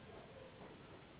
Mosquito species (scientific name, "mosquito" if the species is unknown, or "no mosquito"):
Anopheles gambiae s.s.